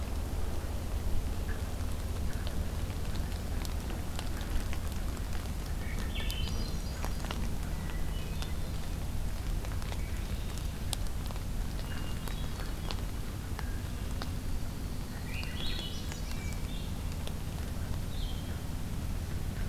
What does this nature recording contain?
Swainson's Thrush, Hermit Thrush, Red-winged Blackbird